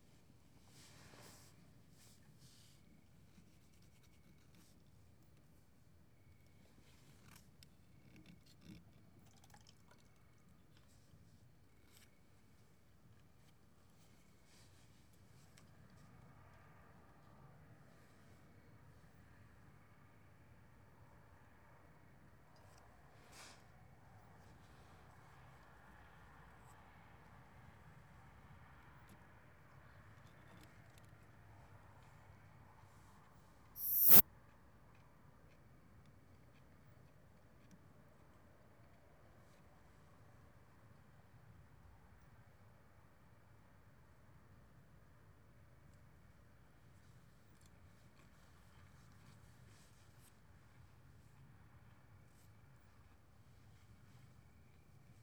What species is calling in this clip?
Isophya obtusa